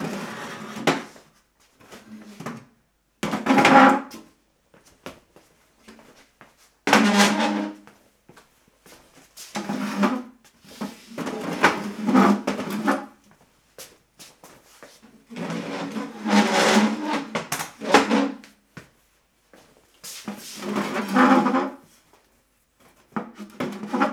Can footsteps be heard?
yes